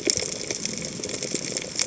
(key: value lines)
label: biophony, chatter
recorder: HydroMoth